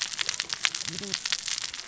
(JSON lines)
{"label": "biophony, cascading saw", "recorder": "SoundTrap 600 or HydroMoth"}